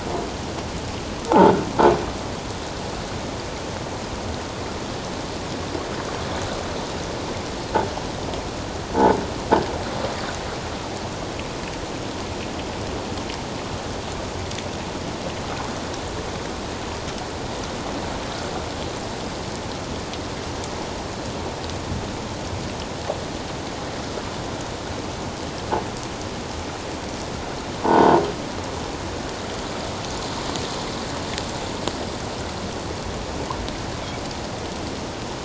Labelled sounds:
1.3	1.5	croaking sound likely from a nearby submerged object, 0.78 to 1.0 kHz
27.8	28.2	croaking sound likely from a nearby submerged object, 0.81 to 1.5 kHz

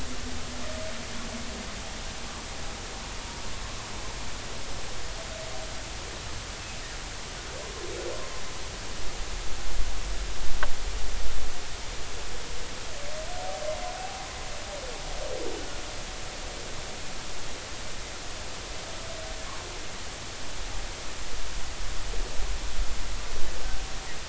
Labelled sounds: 13.9	14.3	humpback whale, 0.80 to 0.83 kHz

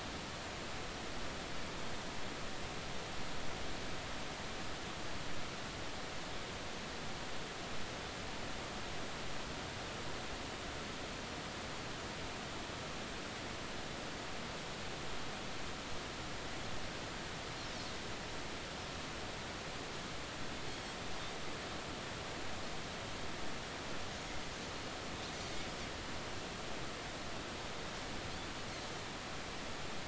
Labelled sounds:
20.7	20.9	Pacific white-sided dolphin, 4.2 to 4.4 kHz

